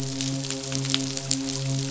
{"label": "biophony, midshipman", "recorder": "SoundTrap 500"}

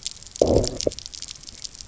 {"label": "biophony, low growl", "recorder": "SoundTrap 300"}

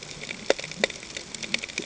{"label": "ambient", "recorder": "HydroMoth"}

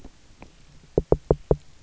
{"label": "biophony, knock", "recorder": "SoundTrap 300"}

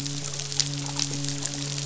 {"label": "biophony, midshipman", "recorder": "SoundTrap 500"}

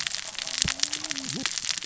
{"label": "biophony, cascading saw", "recorder": "SoundTrap 600 or HydroMoth"}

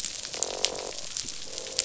{"label": "biophony, croak", "recorder": "SoundTrap 500"}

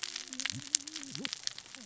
{"label": "biophony, cascading saw", "recorder": "SoundTrap 600 or HydroMoth"}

